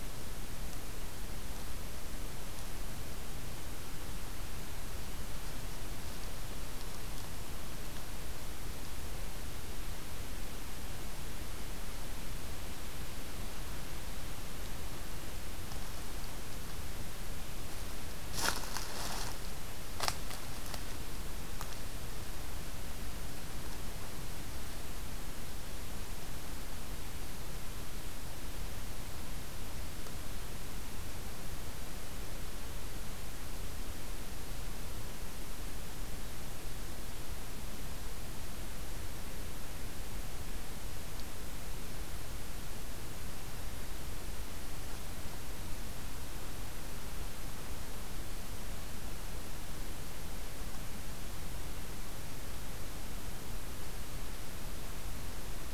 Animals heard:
forest ambience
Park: Katahdin Woods and Waters National Monument